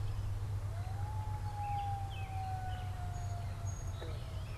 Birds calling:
American Robin (Turdus migratorius), Song Sparrow (Melospiza melodia)

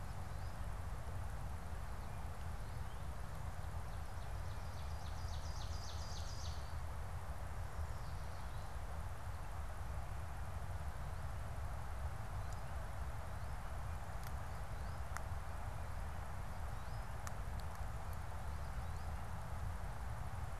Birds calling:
Ovenbird (Seiurus aurocapilla), American Goldfinch (Spinus tristis)

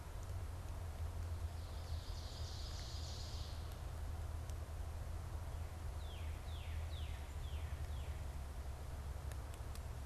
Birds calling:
Ovenbird (Seiurus aurocapilla), Northern Cardinal (Cardinalis cardinalis)

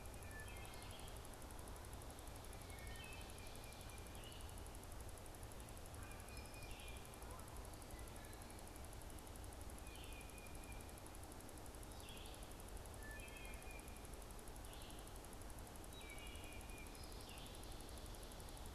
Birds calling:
Red-eyed Vireo (Vireo olivaceus), Wood Thrush (Hylocichla mustelina), Canada Goose (Branta canadensis), Tufted Titmouse (Baeolophus bicolor)

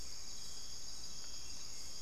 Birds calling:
Hauxwell's Thrush (Turdus hauxwelli)

